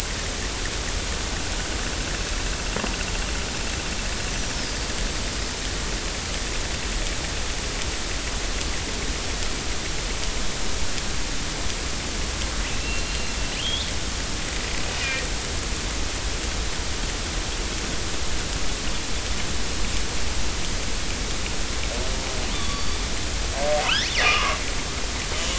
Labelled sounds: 4.5	4.9	killer whale, northern resident, 4.6 to 5.4 kHz
12.7	13.9	killer whale, northern resident, 2.6 to 3.8 kHz
16.0	16.2	killer whale, northern resident, 1.8 to 2.0 kHz
22.5	23.0	killer whale, northern resident, 1.1 to 4.7 kHz
24.2	24.6	killer whale, northern resident, 0.96 to 1.3 kHz

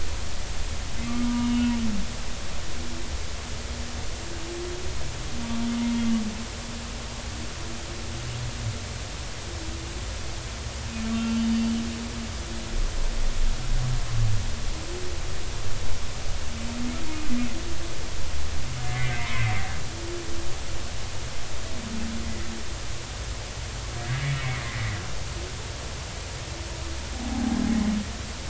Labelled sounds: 1.0	1.7	humpback whale, 0.90 to 3.0 kHz
11.1	11.6	humpback whale, 2.7 to 3.0 kHz
18.8	19.5	humpback whale, 0.90 to 2.3 kHz
24.0	24.8	humpback whale, 1.5 to 2.3 kHz
27.3	27.6	humpback whale, 0.80 to 0.90 kHz

